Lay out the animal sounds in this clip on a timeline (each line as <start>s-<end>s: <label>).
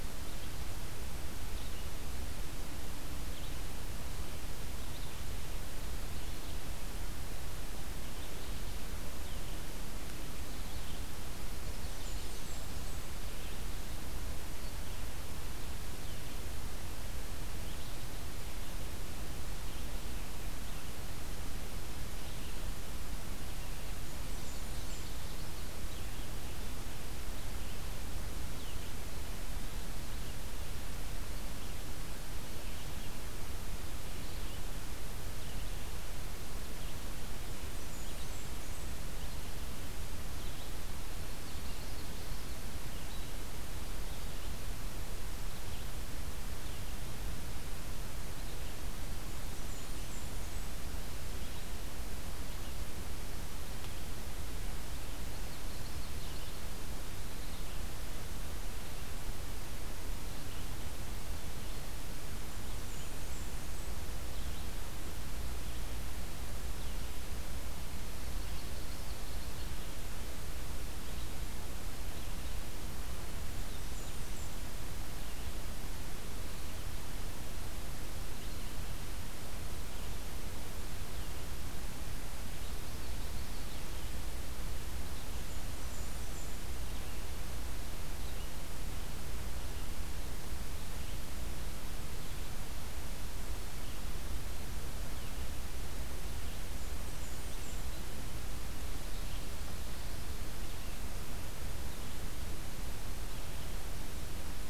11.7s-13.1s: Blackburnian Warbler (Setophaga fusca)
24.0s-25.1s: Blackburnian Warbler (Setophaga fusca)
24.0s-25.6s: Common Yellowthroat (Geothlypis trichas)
37.4s-39.0s: Blackburnian Warbler (Setophaga fusca)
41.1s-42.6s: Common Yellowthroat (Geothlypis trichas)
49.2s-50.8s: Blackburnian Warbler (Setophaga fusca)
55.2s-56.7s: Common Yellowthroat (Geothlypis trichas)
62.6s-63.9s: Blackburnian Warbler (Setophaga fusca)
68.1s-69.8s: Common Yellowthroat (Geothlypis trichas)
73.6s-74.6s: Blackburnian Warbler (Setophaga fusca)
82.4s-83.7s: Common Yellowthroat (Geothlypis trichas)
85.3s-86.6s: Blackburnian Warbler (Setophaga fusca)
96.6s-97.9s: Blackburnian Warbler (Setophaga fusca)